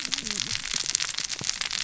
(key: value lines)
label: biophony, cascading saw
recorder: SoundTrap 600 or HydroMoth